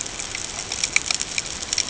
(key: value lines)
label: ambient
recorder: HydroMoth